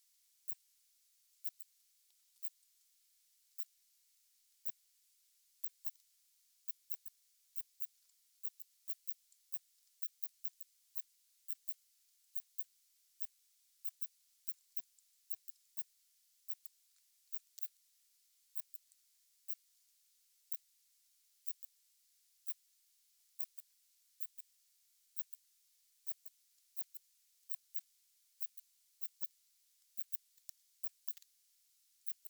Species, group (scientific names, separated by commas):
Phaneroptera falcata, Orthoptera